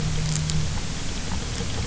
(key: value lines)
label: anthrophony, boat engine
recorder: SoundTrap 300